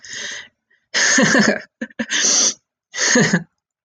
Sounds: Laughter